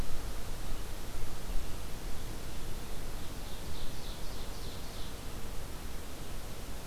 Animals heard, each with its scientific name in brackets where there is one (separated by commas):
Ovenbird (Seiurus aurocapilla)